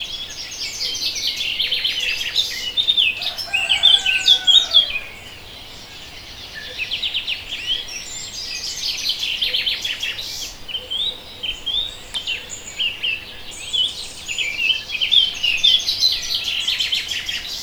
Is there a rooster?
yes